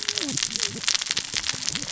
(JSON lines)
{"label": "biophony, cascading saw", "recorder": "SoundTrap 600 or HydroMoth"}